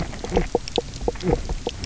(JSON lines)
{"label": "biophony, knock croak", "recorder": "SoundTrap 300"}